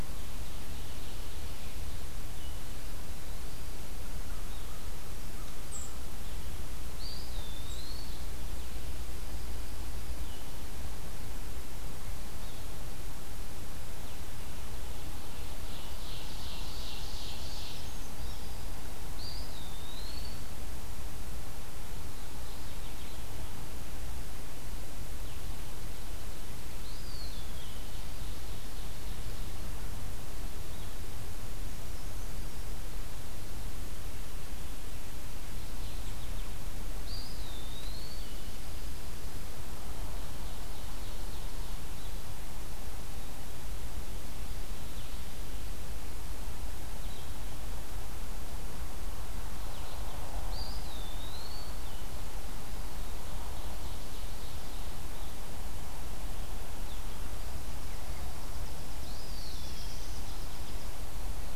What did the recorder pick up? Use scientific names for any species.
Seiurus aurocapilla, Vireo solitarius, Contopus virens, Corvus brachyrhynchos, Zonotrichia albicollis, Certhia americana, Geothlypis philadelphia, Spizella passerina